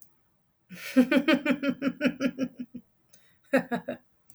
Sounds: Laughter